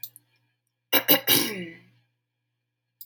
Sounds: Throat clearing